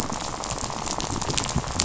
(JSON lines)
{"label": "biophony, rattle", "recorder": "SoundTrap 500"}